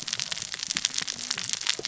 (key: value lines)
label: biophony, cascading saw
recorder: SoundTrap 600 or HydroMoth